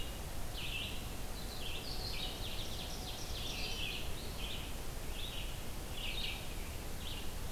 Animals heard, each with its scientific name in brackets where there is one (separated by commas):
Ovenbird (Seiurus aurocapilla), Red-eyed Vireo (Vireo olivaceus)